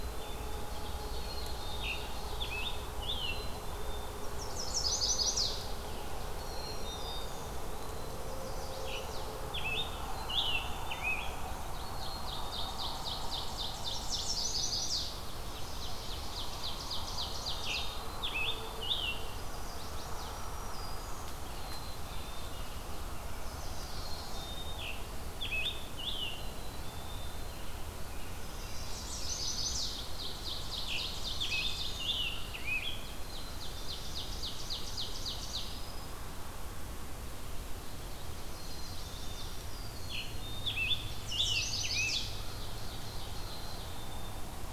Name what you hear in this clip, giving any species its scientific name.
Poecile atricapillus, Seiurus aurocapilla, Piranga olivacea, Setophaga pensylvanica, Setophaga virens, Contopus virens, Turdus migratorius